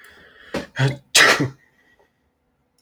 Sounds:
Sneeze